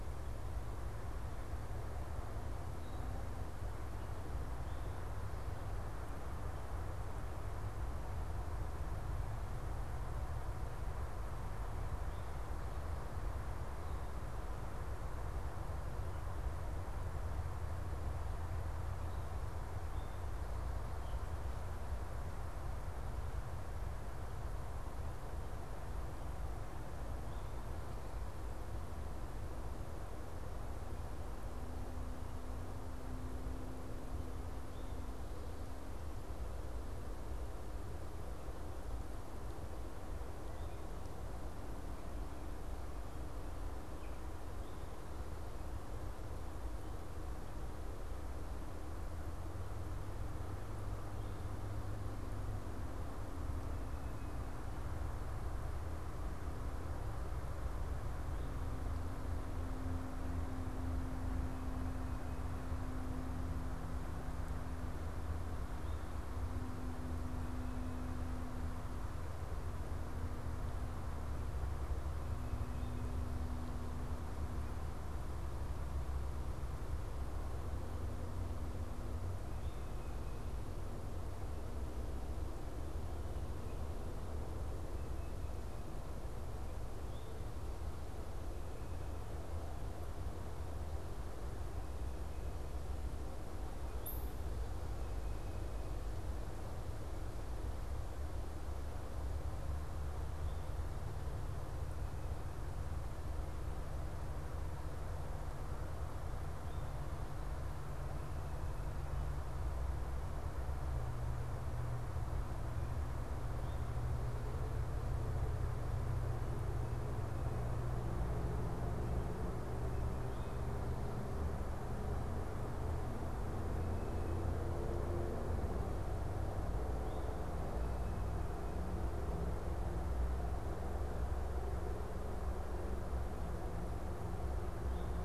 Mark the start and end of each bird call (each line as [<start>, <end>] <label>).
[72.28, 73.18] Tufted Titmouse (Baeolophus bicolor)
[79.68, 80.58] Tufted Titmouse (Baeolophus bicolor)
[84.88, 85.98] Tufted Titmouse (Baeolophus bicolor)
[91.68, 96.08] Tufted Titmouse (Baeolophus bicolor)
[93.68, 94.28] Northern Cardinal (Cardinalis cardinalis)